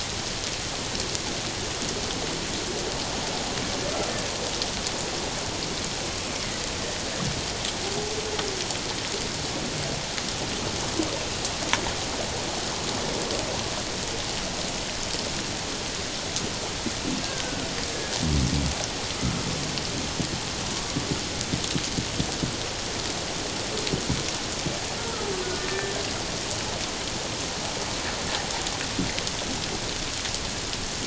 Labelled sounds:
25.7	25.9	killer whale, 1.7 to 1.8 kHz

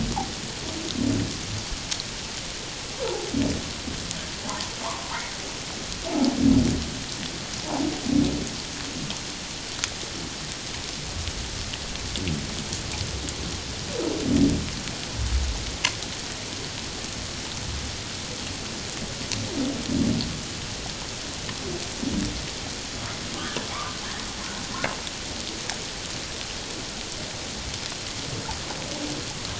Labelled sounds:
4.4	5.1	humpback whale, 0.81 to 1.2 kHz
6.1	6.3	humpback whale, 0.78 to 0.94 kHz

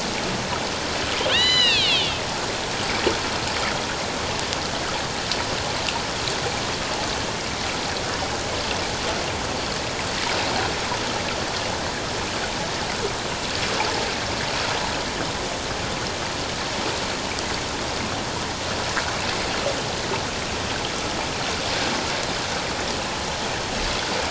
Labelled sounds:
1.3	2.2	killer whale, northern resident, A clan, AB subclan, H01 pod, call N01iv, 1.5 to 8.0 kHz

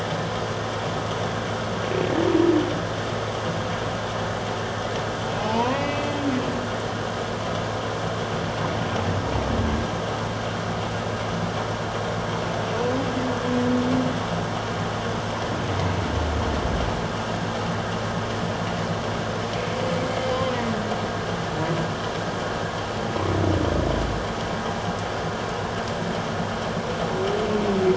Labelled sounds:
5.4	6.2	humpback whale, 0.78 to 2.9 kHz

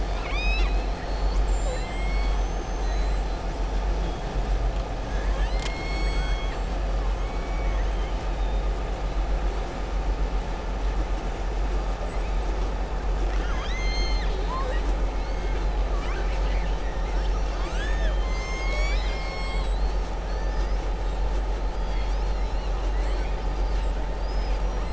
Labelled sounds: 0.0	0.9	killer whale, southern resident, 1.0 to 7.9 kHz
7.2	8.1	killer whale, southern resident, 1.1 to 3.2 kHz
15.9	16.8	killer whale, southern resident, 0.99 to 3.1 kHz
24.1	24.9	killer whale, southern resident, 4.6 to 5.8 kHz

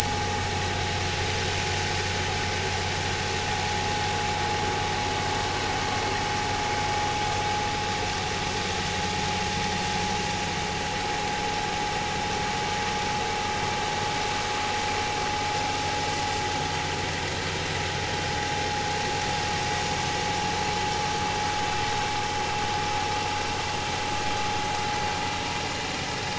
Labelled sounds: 0.0	0.4	vessel noise, 5.6 to 5.8 kHz
1.0	1.4	vessel noise, 0.80 to 0.90 kHz

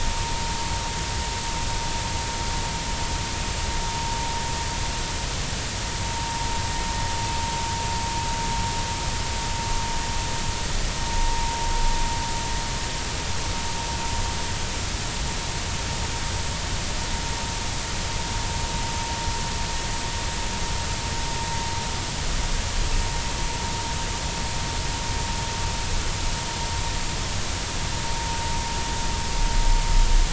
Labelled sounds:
6.2	6.4	vessel noise, 0.86 to 0.96 kHz

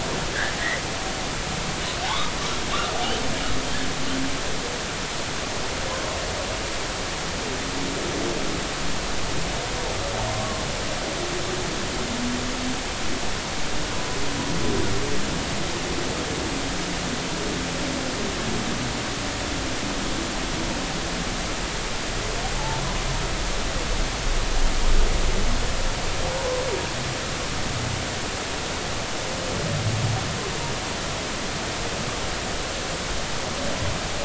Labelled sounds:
2.0	2.3	humpback whale, 0.80 to 1.3 kHz
10.3	10.6	humpback whale, 0.90 to 1.2 kHz
22.6	22.8	humpback whale, 0.80 to 0.96 kHz
26.4	26.6	humpback whale, 0.90 to 1.1 kHz

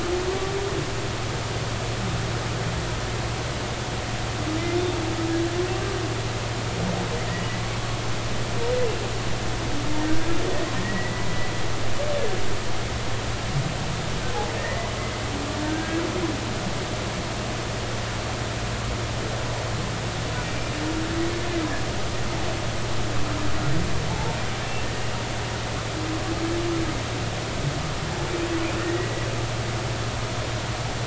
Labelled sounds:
10.8	11.3	humpback whale, 1.8 to 2.0 kHz
14.5	14.9	humpback whale, 1.8 to 2.0 kHz
15.6	16.0	humpback whale, 1.5 to 1.7 kHz
20.4	20.7	humpback whale, 2.3 to 2.4 kHz
24.1	24.4	humpback whale, 0.80 to 0.96 kHz
28.6	29.1	humpback whale, 1.8 to 2.8 kHz

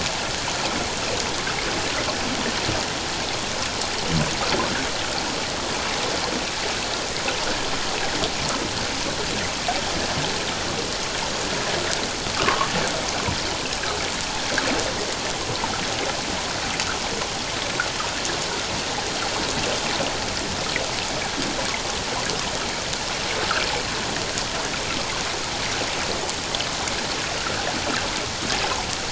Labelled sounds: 12.3	12.7	humpback whale, 0.91 to 1.6 kHz

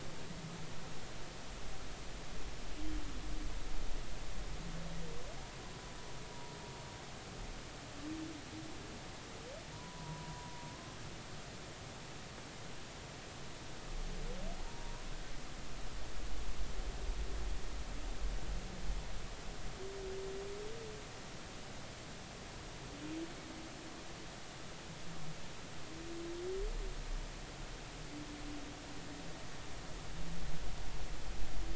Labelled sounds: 9.7	10.7	humpback whale, 0.90 to 1.1 kHz
14.6	14.9	humpback whale, 0.90 to 0.99 kHz

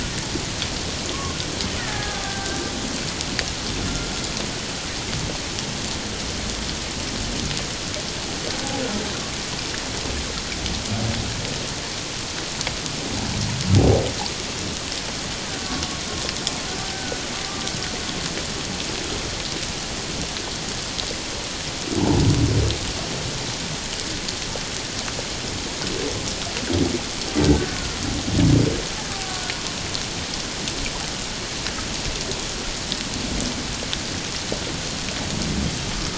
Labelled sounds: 1.8	2.6	killer whale, Bigg's (transient), 0.78 to 2.0 kHz
16.8	17.2	killer whale, Bigg's (transient), 1.4 to 1.7 kHz
27.6	28.0	killer whale, Bigg's (transient), 1.3 to 1.6 kHz

